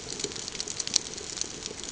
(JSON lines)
{"label": "ambient", "recorder": "HydroMoth"}